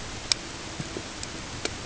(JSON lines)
{"label": "ambient", "recorder": "HydroMoth"}